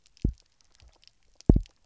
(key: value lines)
label: biophony, double pulse
recorder: SoundTrap 300